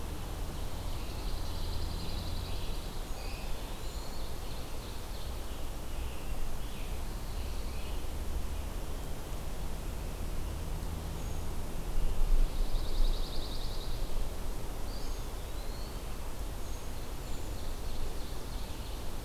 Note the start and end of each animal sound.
0.0s-3.6s: Scarlet Tanager (Piranga olivacea)
0.7s-3.0s: Pine Warbler (Setophaga pinus)
3.0s-4.4s: Eastern Wood-Pewee (Contopus virens)
3.7s-5.7s: Ovenbird (Seiurus aurocapilla)
5.9s-8.2s: Scarlet Tanager (Piranga olivacea)
12.3s-14.1s: Pine Warbler (Setophaga pinus)
14.6s-16.2s: Eastern Wood-Pewee (Contopus virens)
16.6s-19.2s: Ovenbird (Seiurus aurocapilla)

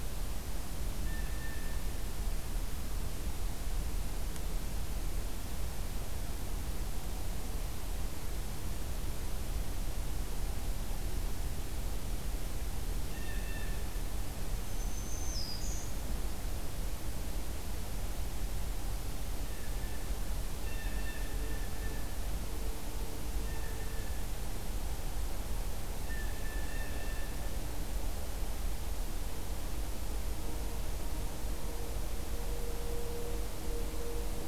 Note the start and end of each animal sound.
0.9s-1.9s: Blue Jay (Cyanocitta cristata)
13.0s-14.0s: Blue Jay (Cyanocitta cristata)
14.5s-16.0s: Black-throated Green Warbler (Setophaga virens)
19.3s-20.3s: Blue Jay (Cyanocitta cristata)
20.6s-22.3s: Blue Jay (Cyanocitta cristata)
23.2s-24.4s: Blue Jay (Cyanocitta cristata)
26.0s-27.5s: Blue Jay (Cyanocitta cristata)

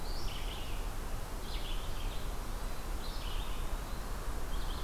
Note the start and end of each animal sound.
0.0s-4.8s: Red-eyed Vireo (Vireo olivaceus)
2.8s-4.4s: Eastern Wood-Pewee (Contopus virens)

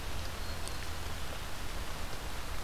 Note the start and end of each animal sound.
0.0s-1.0s: Black-throated Green Warbler (Setophaga virens)

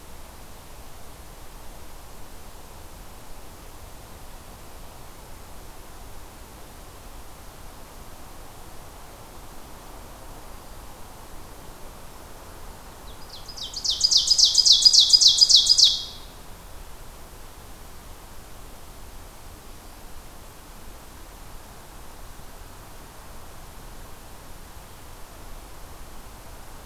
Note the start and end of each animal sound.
12.9s-16.3s: Ovenbird (Seiurus aurocapilla)

